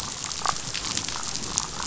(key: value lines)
label: biophony, damselfish
recorder: SoundTrap 500